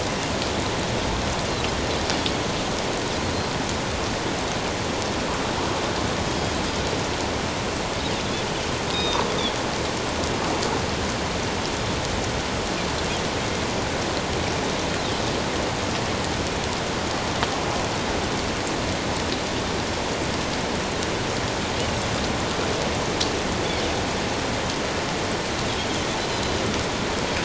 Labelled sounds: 8.9	9.2	Pacific white-sided dolphin, 3.6 to 3.8 kHz

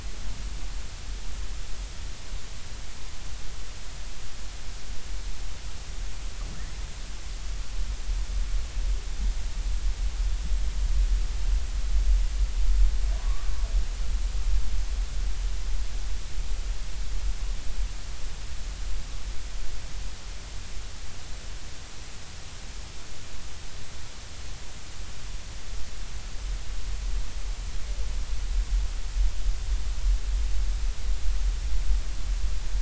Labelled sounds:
13.2	13.5	humpback whale, 0.96 to 1.2 kHz

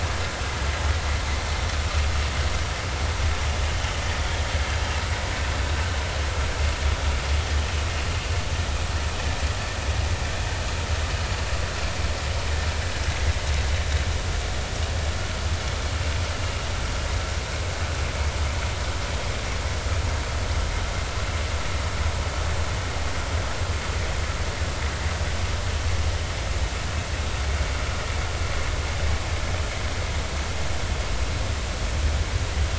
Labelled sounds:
4.2	4.5	vessel noise, 3.2 to 3.4 kHz

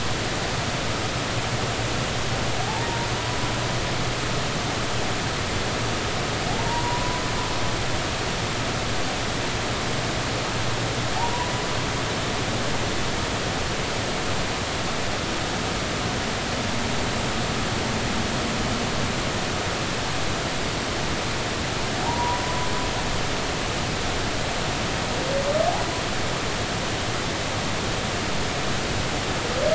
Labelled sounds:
6.5	7.2	humpback whale, 0.80 to 1.1 kHz
11.2	11.5	humpback whale, 0.80 to 1.0 kHz
22.0	22.4	humpback whale, 0.80 to 1.0 kHz

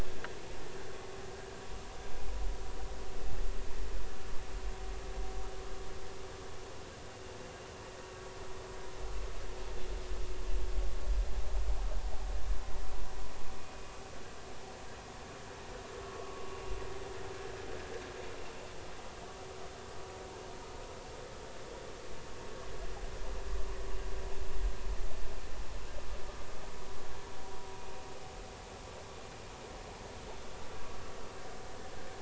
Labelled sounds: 16.2	16.5	vessel noise, 0.93 to 1.2 kHz

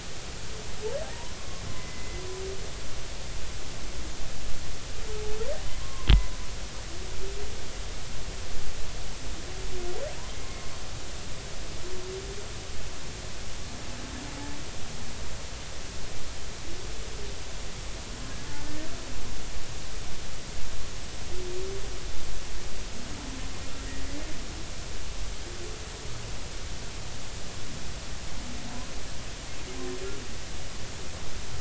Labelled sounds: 1.4	2.2	humpback whale, 1.1 to 2.1 kHz
5.8	6.4	humpback whale, 0.93 to 1.1 kHz

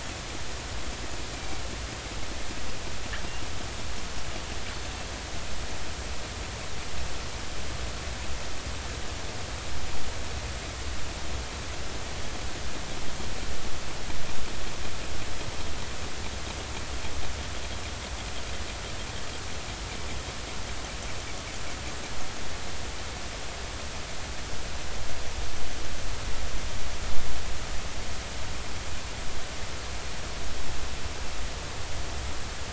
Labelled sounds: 1.4	1.6	killer whale, northern resident, G clan, 2.2 to 2.4 kHz

